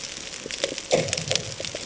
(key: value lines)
label: anthrophony, bomb
recorder: HydroMoth